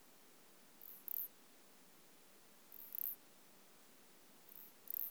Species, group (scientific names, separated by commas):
Isophya clara, Orthoptera